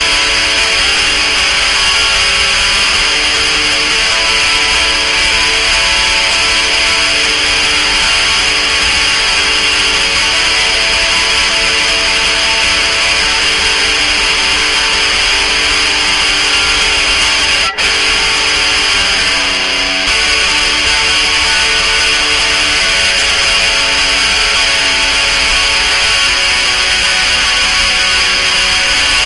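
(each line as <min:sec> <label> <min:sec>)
0:00.0 Someone is playing an electric guitar. 0:28.2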